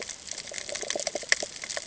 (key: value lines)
label: ambient
recorder: HydroMoth